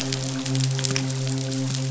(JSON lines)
{"label": "biophony, midshipman", "recorder": "SoundTrap 500"}